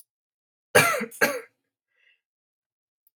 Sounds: Cough